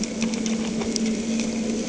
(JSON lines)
{"label": "anthrophony, boat engine", "recorder": "HydroMoth"}